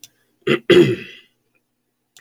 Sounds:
Throat clearing